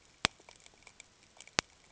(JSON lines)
{"label": "ambient", "recorder": "HydroMoth"}